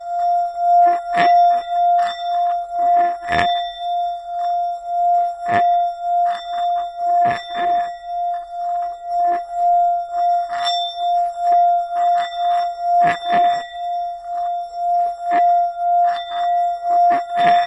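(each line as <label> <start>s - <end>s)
A Tibetan singing bowl resonates continuously. 0.0s - 17.7s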